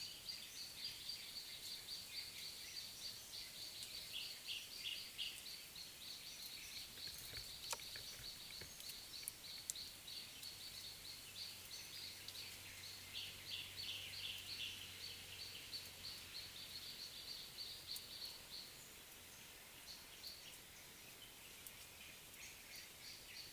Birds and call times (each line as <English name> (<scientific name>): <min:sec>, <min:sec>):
Gray Apalis (Apalis cinerea): 0:04.9, 0:10.2, 0:13.8